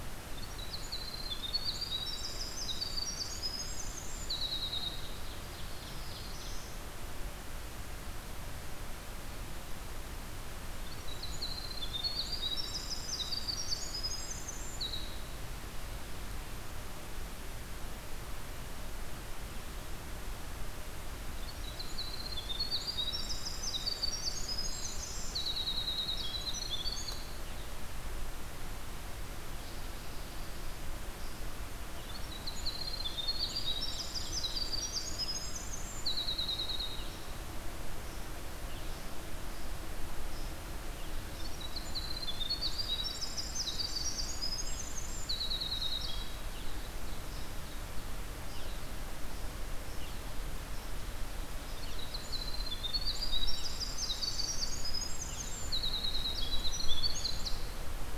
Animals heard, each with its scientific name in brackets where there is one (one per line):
Red-eyed Vireo (Vireo olivaceus)
Black-throated Blue Warbler (Setophaga caerulescens)
Winter Wren (Troglodytes hiemalis)